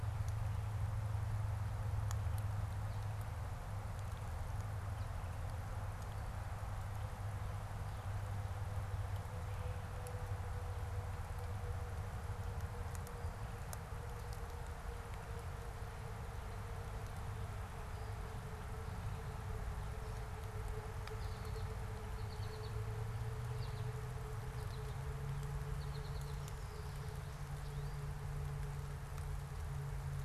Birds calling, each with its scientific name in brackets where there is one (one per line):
American Goldfinch (Spinus tristis)